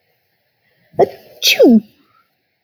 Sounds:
Sneeze